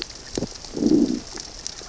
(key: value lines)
label: biophony, growl
recorder: SoundTrap 600 or HydroMoth